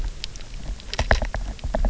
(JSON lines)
{"label": "biophony, knock", "recorder": "SoundTrap 300"}